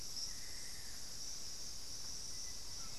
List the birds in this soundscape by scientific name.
Turdus hauxwelli, Dendrocolaptes certhia, Formicarius analis